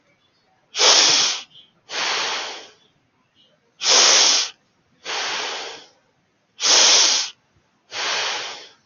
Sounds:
Sigh